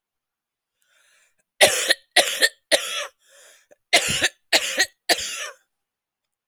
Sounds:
Cough